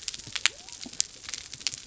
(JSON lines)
{"label": "biophony", "recorder": "SoundTrap 300"}